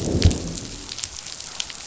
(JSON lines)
{"label": "biophony, growl", "recorder": "SoundTrap 500"}